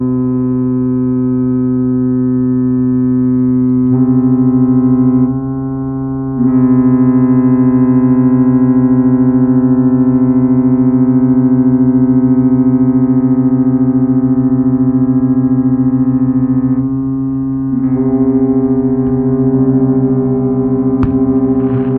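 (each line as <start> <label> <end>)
0.0 A ship horn sounds with a deep, resonant tone in a quiet outdoor harbor setting. 5.4
3.9 A ship horn sounds with a resonant tone in a quiet outdoor harbor. 22.0
6.4 A ship horn sounds with a deep, resonant tone in a quiet outdoor harbor setting. 16.9
17.7 A ship horn sounds with a deep, resonant tone in a quiet outdoor harbor setting. 22.0
18.9 A firework explosion echoes in the distance. 19.4
21.0 A firework explodes with an echoing, sparkling resonance in the distance. 22.0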